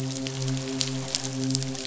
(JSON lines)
{"label": "biophony, midshipman", "recorder": "SoundTrap 500"}